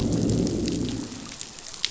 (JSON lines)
{"label": "biophony, growl", "recorder": "SoundTrap 500"}